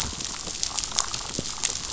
{"label": "biophony", "recorder": "SoundTrap 500"}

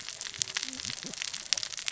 {"label": "biophony, cascading saw", "recorder": "SoundTrap 600 or HydroMoth"}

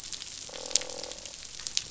{"label": "biophony, croak", "recorder": "SoundTrap 500"}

